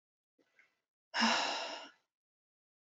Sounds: Sigh